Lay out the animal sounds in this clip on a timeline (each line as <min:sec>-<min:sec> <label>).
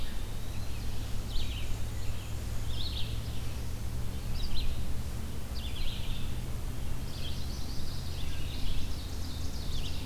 0:00.0-0:00.7 Eastern Wood-Pewee (Contopus virens)
0:00.0-0:09.9 Red-eyed Vireo (Vireo olivaceus)
0:00.7-0:02.8 Black-and-white Warbler (Mniotilta varia)
0:06.8-0:10.0 Ovenbird (Seiurus aurocapilla)
0:06.9-0:08.2 Black-throated Blue Warbler (Setophaga caerulescens)